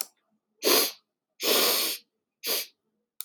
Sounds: Sniff